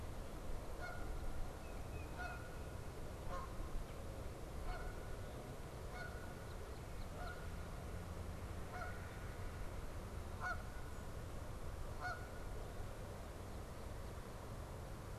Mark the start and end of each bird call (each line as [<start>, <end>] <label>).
[0.00, 15.18] Canada Goose (Branta canadensis)
[1.51, 2.61] Tufted Titmouse (Baeolophus bicolor)
[6.31, 7.41] Northern Cardinal (Cardinalis cardinalis)